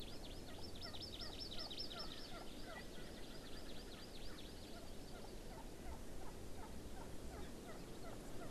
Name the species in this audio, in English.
Hawaii Amakihi, Erckel's Francolin